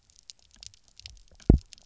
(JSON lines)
{"label": "biophony, double pulse", "recorder": "SoundTrap 300"}